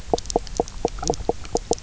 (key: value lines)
label: biophony, knock croak
recorder: SoundTrap 300